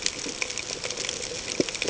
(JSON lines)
{"label": "ambient", "recorder": "HydroMoth"}